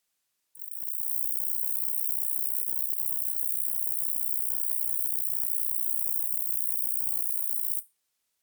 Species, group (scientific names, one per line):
Roeseliana ambitiosa
Orthoptera